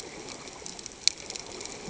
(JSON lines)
{"label": "ambient", "recorder": "HydroMoth"}